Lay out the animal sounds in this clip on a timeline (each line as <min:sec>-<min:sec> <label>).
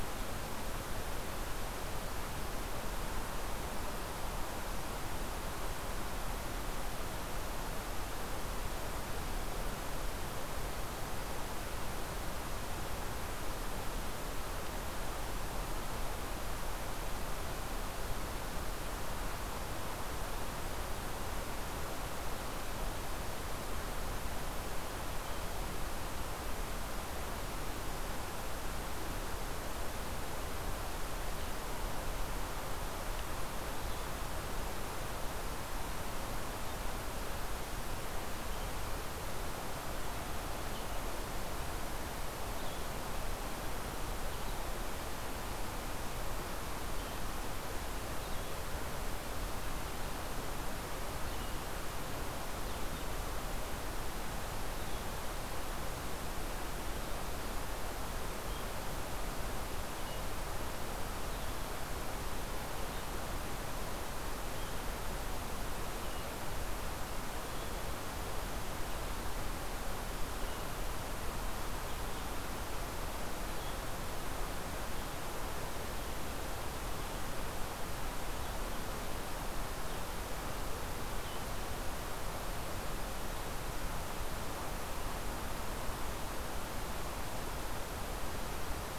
0:40.4-1:14.3 Red-eyed Vireo (Vireo olivaceus)